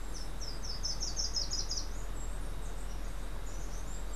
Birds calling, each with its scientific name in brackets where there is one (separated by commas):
Steely-vented Hummingbird (Saucerottia saucerottei), Slate-throated Redstart (Myioborus miniatus)